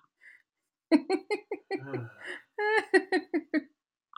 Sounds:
Laughter